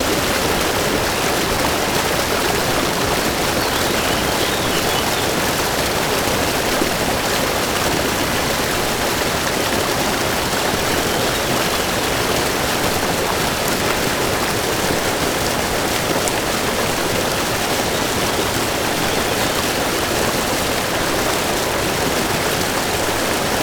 How is the weather?
rainy